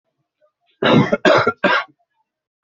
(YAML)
expert_labels:
- quality: good
  cough_type: dry
  dyspnea: false
  wheezing: false
  stridor: false
  choking: false
  congestion: false
  nothing: true
  diagnosis: upper respiratory tract infection
  severity: mild
age: 58
gender: male
respiratory_condition: true
fever_muscle_pain: false
status: COVID-19